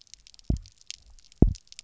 {"label": "biophony, double pulse", "recorder": "SoundTrap 300"}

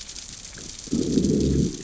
{"label": "biophony, growl", "recorder": "SoundTrap 600 or HydroMoth"}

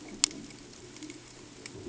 {"label": "ambient", "recorder": "HydroMoth"}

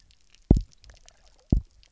{"label": "biophony, double pulse", "recorder": "SoundTrap 300"}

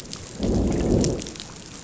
{"label": "biophony, growl", "recorder": "SoundTrap 500"}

